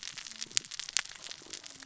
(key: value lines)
label: biophony, cascading saw
recorder: SoundTrap 600 or HydroMoth